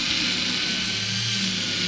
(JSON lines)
{"label": "anthrophony, boat engine", "recorder": "SoundTrap 500"}